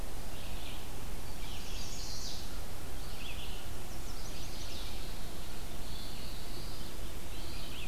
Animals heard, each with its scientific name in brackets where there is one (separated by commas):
Black-throated Blue Warbler (Setophaga caerulescens), Red-eyed Vireo (Vireo olivaceus), Chestnut-sided Warbler (Setophaga pensylvanica)